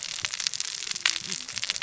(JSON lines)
{"label": "biophony, cascading saw", "recorder": "SoundTrap 600 or HydroMoth"}